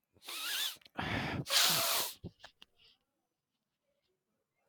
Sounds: Sniff